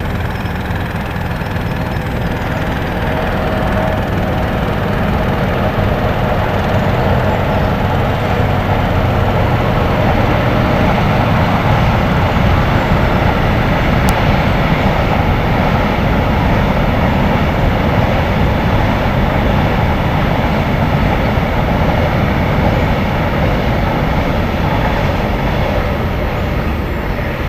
Does the sound continue till the end?
yes